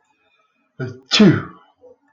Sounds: Sneeze